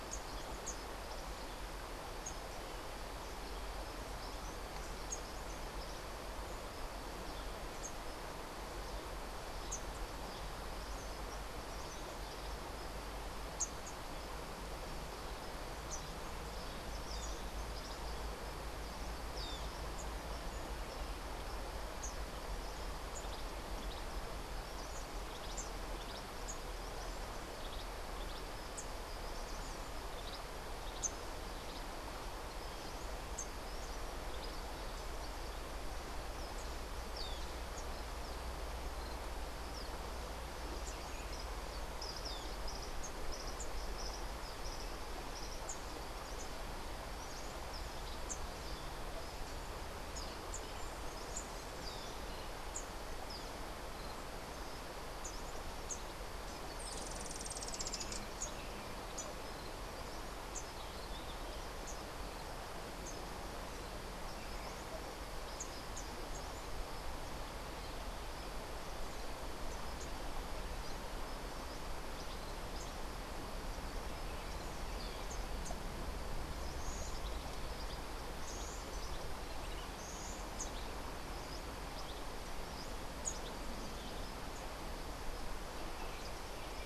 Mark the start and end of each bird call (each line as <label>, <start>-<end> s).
Rufous-capped Warbler (Basileuterus rufifrons), 0.0-14.0 s
Social Flycatcher (Myiozetetes similis), 19.2-19.6 s
Rufous-capped Warbler (Basileuterus rufifrons), 28.6-34.3 s
Cabanis's Wren (Cantorchilus modestus), 43.2-46.0 s
Rufous-tailed Hummingbird (Amazilia tzacatl), 56.7-58.5 s
Rufous-capped Warbler (Basileuterus rufifrons), 60.5-66.5 s
Buff-throated Saltator (Saltator maximus), 76.4-80.5 s